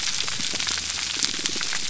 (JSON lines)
{"label": "biophony, pulse", "recorder": "SoundTrap 300"}